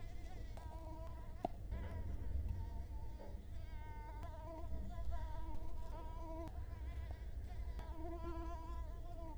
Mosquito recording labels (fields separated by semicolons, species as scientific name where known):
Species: Culex quinquefasciatus; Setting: cup